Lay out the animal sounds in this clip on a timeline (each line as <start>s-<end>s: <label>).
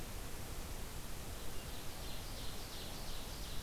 1.4s-3.6s: Ovenbird (Seiurus aurocapilla)